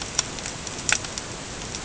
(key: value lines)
label: ambient
recorder: HydroMoth